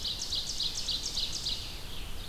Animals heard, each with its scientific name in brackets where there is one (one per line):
Ovenbird (Seiurus aurocapilla)
Red-eyed Vireo (Vireo olivaceus)